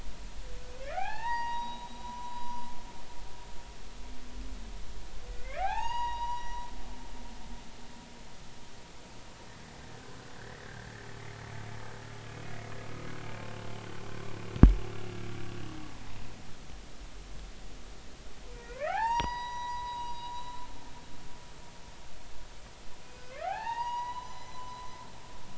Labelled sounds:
0.9	3.6	humpback whale, 0.80 to 5.9 kHz
5.4	6.6	humpback whale, 0.80 to 6.8 kHz
10.3	10.9	humpback whale, 1.5 to 2.0 kHz
18.5	20.3	humpback whale, 0.80 to 7.6 kHz
23.2	25.2	humpback whale, 0.80 to 6.1 kHz

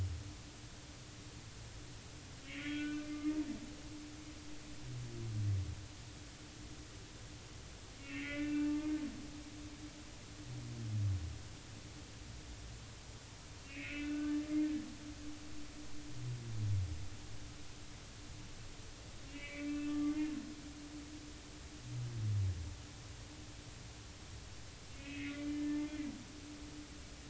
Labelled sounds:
2.5	3.4	humpback whale, 1.2 to 3.3 kHz
8.0	8.7	humpback whale, 1.4 to 3.0 kHz
13.7	14.4	humpback whale, 1.1 to 2.8 kHz
19.3	20.3	humpback whale, 1.1 to 2.9 kHz
24.9	25.8	humpback whale, 1.7 to 2.9 kHz

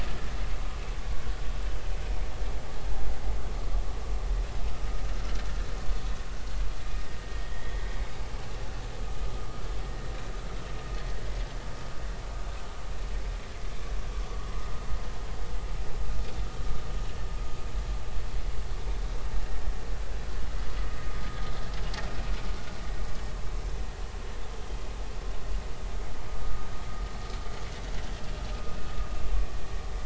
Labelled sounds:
7.2	7.7	vessel noise, 1.8 to 3.3 kHz

